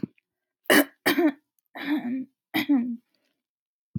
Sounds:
Throat clearing